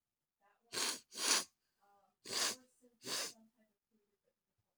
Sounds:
Sniff